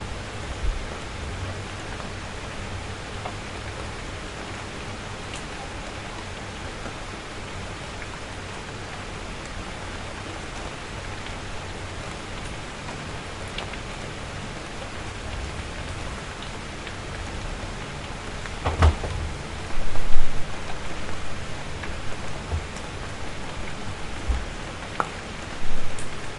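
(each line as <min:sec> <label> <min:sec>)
0:00.0 Rain is falling. 0:26.4
0:18.6 A door closes. 0:19.0
0:22.4 A low clacking sound. 0:22.7
0:24.2 A low thumping sound. 0:24.5
0:24.9 A short popping sound. 0:25.1
0:25.9 A quiet click. 0:26.3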